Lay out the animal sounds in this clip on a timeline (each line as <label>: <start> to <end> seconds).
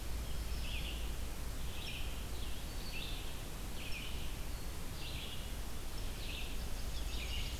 Red-eyed Vireo (Vireo olivaceus): 0.0 to 7.6 seconds
Blackburnian Warbler (Setophaga fusca): 6.4 to 7.6 seconds